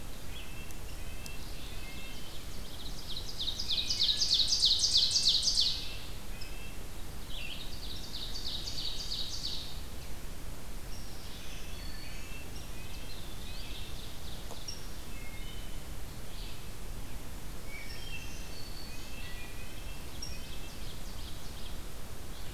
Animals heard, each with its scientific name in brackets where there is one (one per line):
Wood Thrush (Hylocichla mustelina)
Ovenbird (Seiurus aurocapilla)
Eastern Wood-Pewee (Contopus virens)
Red-breasted Nuthatch (Sitta canadensis)
Black-throated Green Warbler (Setophaga virens)